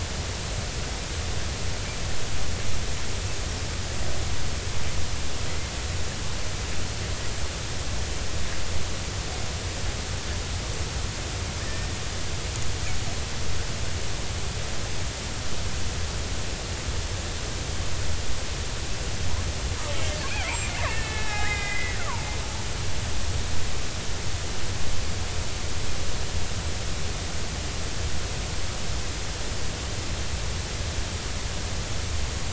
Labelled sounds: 11.6	12.0	killer whale, Bigg's (transient), 1.6 to 2.0 kHz
20.4	22.2	killer whale, Bigg's (transient), 0.80 to 3.9 kHz

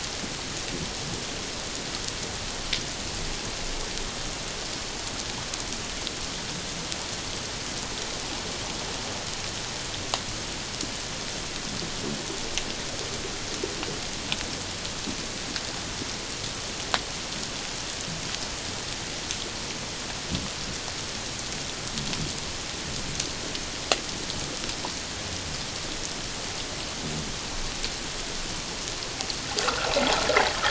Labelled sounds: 29.6	29.9	water noise, 0.97 to 1.7 kHz

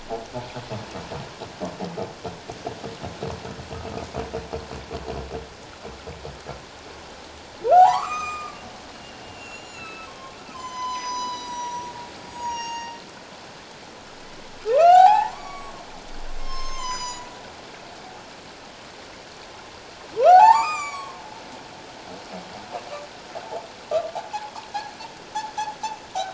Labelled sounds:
7.7	8.6	humpback whale, 0.78 to 7.5 kHz
9.2	12.9	humpback whale, 0.88 to 8.0 kHz
14.7	15.7	humpback whale, 0.78 to 8.0 kHz
16.4	17.3	humpback whale, 0.94 to 8.0 kHz
20.2	21.2	humpback whale, 0.78 to 8.0 kHz

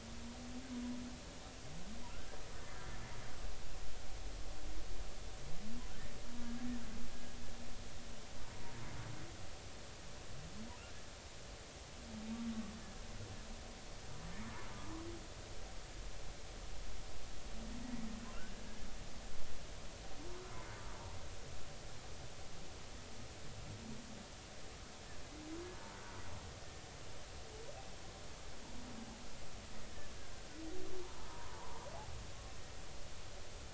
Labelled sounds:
2.1	2.8	humpback whale, 1.2 to 1.9 kHz
31.3	31.8	humpback whale, 0.86 to 1.1 kHz

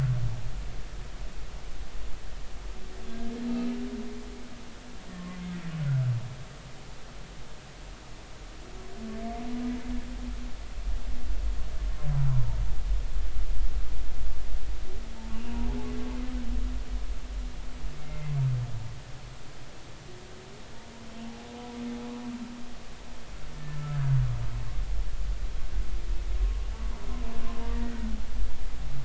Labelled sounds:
5.1	5.4	humpback whale, 1.0 to 1.2 kHz
15.3	15.6	humpback whale, 2.7 to 2.9 kHz
18.0	18.3	humpback whale, 2.0 to 2.2 kHz

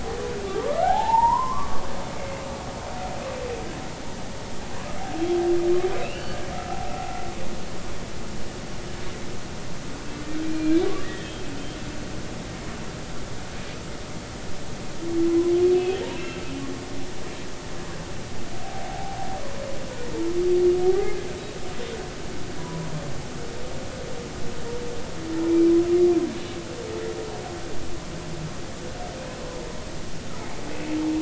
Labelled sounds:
0.5	1.8	humpback whale, 0.80 to 1.7 kHz
2.2	2.4	humpback whale, 2.0 to 2.2 kHz
6.0	6.4	humpback whale, 1.4 to 3.1 kHz
10.4	11.8	humpback whale, 1.7 to 4.3 kHz
15.3	16.4	humpback whale, 0.96 to 3.4 kHz
18.6	19.2	humpback whale, 0.80 to 0.90 kHz
20.8	21.3	humpback whale, 0.80 to 2.2 kHz
22.6	22.9	humpback whale, 0.93 to 1.0 kHz
25.5	25.7	humpback whale, 2.2 to 2.4 kHz
29.2	29.4	humpback whale, 2.4 to 2.6 kHz

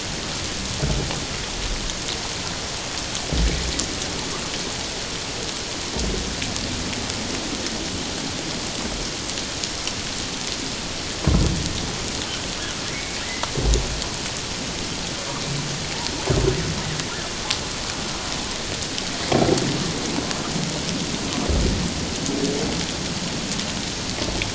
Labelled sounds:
12.9	13.2	humpback whale, 2.0 to 2.4 kHz

